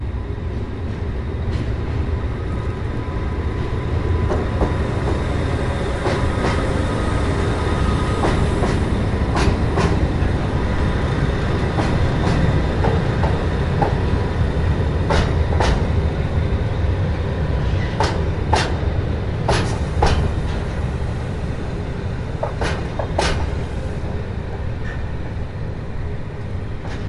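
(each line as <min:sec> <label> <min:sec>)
0:00.0 A train passes over metallic tracks, gradually increasing in volume before fading away. 0:27.1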